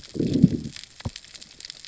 {"label": "biophony, growl", "recorder": "SoundTrap 600 or HydroMoth"}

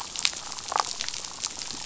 {"label": "biophony, damselfish", "recorder": "SoundTrap 500"}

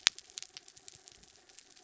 {"label": "anthrophony, mechanical", "recorder": "SoundTrap 300"}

